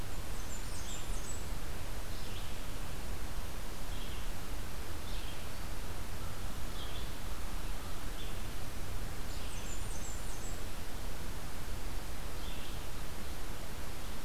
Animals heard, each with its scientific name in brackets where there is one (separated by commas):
Blackburnian Warbler (Setophaga fusca), Red-eyed Vireo (Vireo olivaceus)